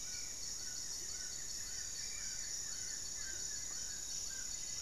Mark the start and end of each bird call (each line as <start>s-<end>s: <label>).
0.0s-3.4s: Buff-throated Woodcreeper (Xiphorhynchus guttatus)
0.0s-4.8s: Amazonian Trogon (Trogon ramonianus)
0.0s-4.8s: Buff-breasted Wren (Cantorchilus leucotis)
0.0s-4.8s: Spot-winged Antshrike (Pygiptila stellaris)
1.5s-4.0s: Goeldi's Antbird (Akletos goeldii)
3.3s-4.8s: Amazonian Motmot (Momotus momota)
4.3s-4.8s: Striped Woodcreeper (Xiphorhynchus obsoletus)